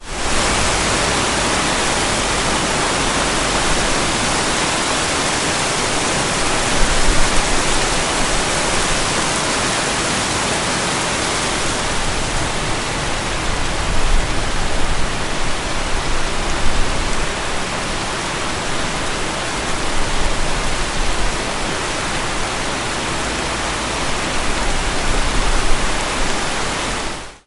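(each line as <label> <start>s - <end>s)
A loud, intense rainfall with a continuous rushing sound. 0.0s - 27.5s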